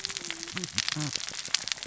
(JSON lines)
{"label": "biophony, cascading saw", "recorder": "SoundTrap 600 or HydroMoth"}